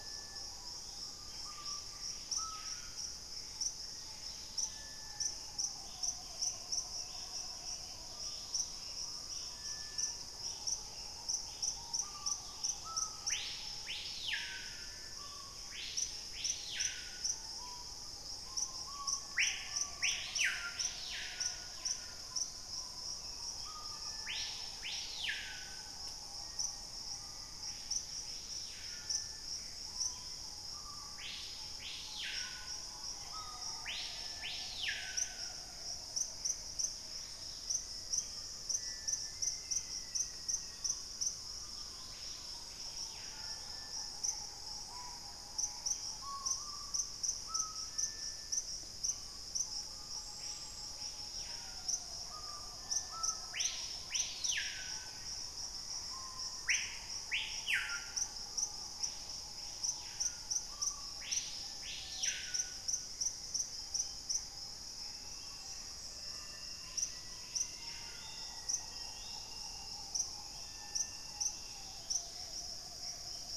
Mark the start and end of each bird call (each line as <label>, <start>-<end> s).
White-crested Spadebill (Platyrinchus platyrhynchos), 0.0-1.7 s
Screaming Piha (Lipaugus vociferans), 0.0-73.6 s
Gray Antbird (Cercomacra cinerascens), 2.3-4.8 s
Black-faced Antthrush (Formicarius analis), 3.7-6.2 s
Dusky-capped Greenlet (Pachysylvia hypoxantha), 3.8-13.1 s
Buff-breasted Wren (Cantorchilus leucotis), 8.0-11.0 s
Black-faced Antthrush (Formicarius analis), 15.6-17.8 s
White-crested Spadebill (Platyrinchus platyrhynchos), 17.5-23.7 s
Black-capped Becard (Pachyramphus marginatus), 23.1-25.8 s
Black-faced Antthrush (Formicarius analis), 26.4-28.3 s
Dusky-capped Greenlet (Pachysylvia hypoxantha), 27.6-28.7 s
Gray Antbird (Cercomacra cinerascens), 29.4-30.2 s
Dusky-throated Antshrike (Thamnomanes ardesiacus), 32.8-33.7 s
unidentified bird, 33.1-33.7 s
Gray Antbird (Cercomacra cinerascens), 35.5-37.7 s
Dusky-capped Greenlet (Pachysylvia hypoxantha), 36.6-42.9 s
Black-faced Antthrush (Formicarius analis), 37.0-40.9 s
White-crested Spadebill (Platyrinchus platyrhynchos), 38.0-38.5 s
Black-capped Becard (Pachyramphus marginatus), 39.3-41.1 s
Gray Antbird (Cercomacra cinerascens), 43.9-46.6 s
White-crested Spadebill (Platyrinchus platyrhynchos), 45.8-49.5 s
Black-faced Antthrush (Formicarius analis), 55.0-57.2 s
Purple-throated Euphonia (Euphonia chlorotica), 60.7-65.8 s
Black-faced Antthrush (Formicarius analis), 65.2-69.2 s
Yellow-margined Flycatcher (Tolmomyias assimilis), 67.9-69.8 s
Dusky-capped Greenlet (Pachysylvia hypoxantha), 71.3-73.6 s
Gray Antbird (Cercomacra cinerascens), 72.1-73.6 s
White-crested Spadebill (Platyrinchus platyrhynchos), 73.1-73.6 s